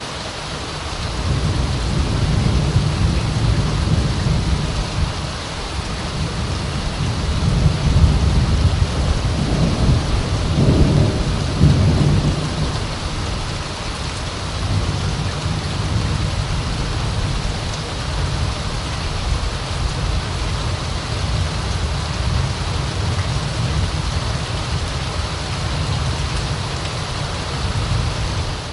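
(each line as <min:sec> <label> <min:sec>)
0:00.0 Heavy rain during a storm outdoors. 0:28.7
0:00.0 Thunder is heard outdoors. 0:28.7
0:07.2 Hard thunder is heard. 0:12.4
0:07.2 Lightning strikes outdoors. 0:12.4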